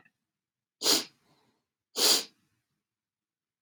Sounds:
Sniff